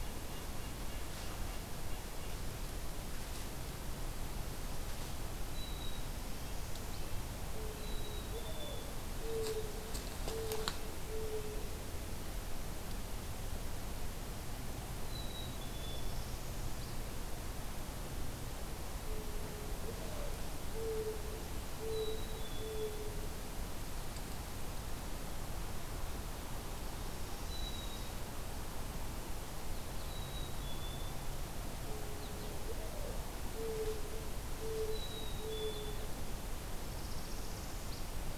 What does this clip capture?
Red-breasted Nuthatch, Black-capped Chickadee, Mourning Dove, Northern Parula, American Goldfinch